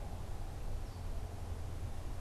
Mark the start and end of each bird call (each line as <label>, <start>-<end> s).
unidentified bird, 0.6-2.2 s